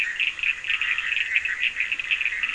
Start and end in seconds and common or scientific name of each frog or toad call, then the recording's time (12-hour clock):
0.0	2.5	Bischoff's tree frog
0.0	2.5	Scinax perereca
0.0	2.5	Cochran's lime tree frog
1.8	2.5	Leptodactylus latrans
12:00am